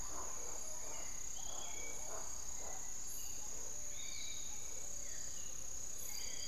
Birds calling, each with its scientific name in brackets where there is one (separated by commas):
Spix's Guan (Penelope jacquacu), Piratic Flycatcher (Legatus leucophaius), Hauxwell's Thrush (Turdus hauxwelli), Amazonian Motmot (Momotus momota)